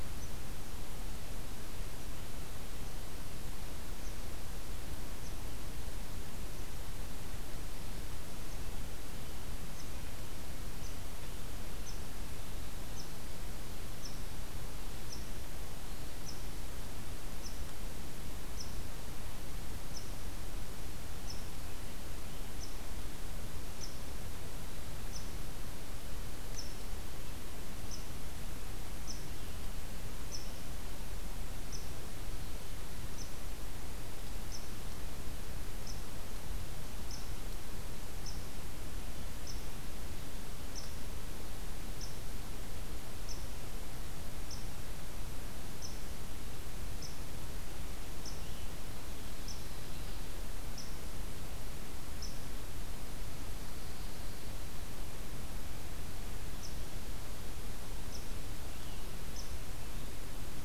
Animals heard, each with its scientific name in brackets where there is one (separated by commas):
unidentified call